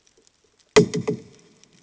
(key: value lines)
label: anthrophony, bomb
recorder: HydroMoth